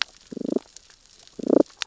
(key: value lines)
label: biophony, damselfish
recorder: SoundTrap 600 or HydroMoth